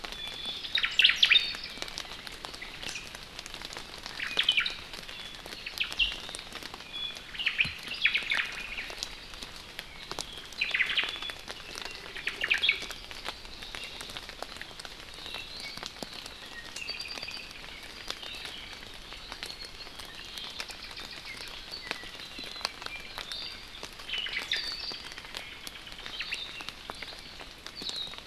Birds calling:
Iiwi (Drepanis coccinea)
Omao (Myadestes obscurus)
Apapane (Himatione sanguinea)

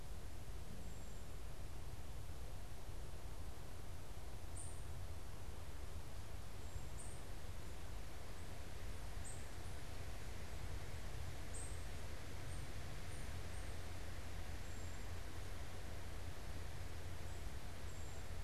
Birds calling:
unidentified bird

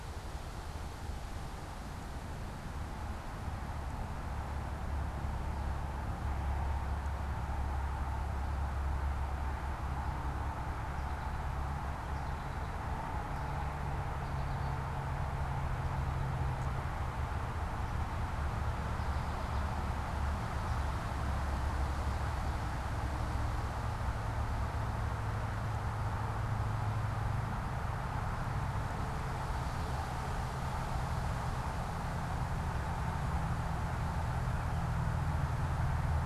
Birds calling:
American Goldfinch (Spinus tristis)

